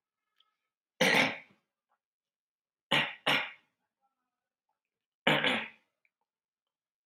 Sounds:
Throat clearing